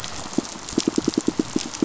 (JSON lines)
{"label": "biophony, pulse", "recorder": "SoundTrap 500"}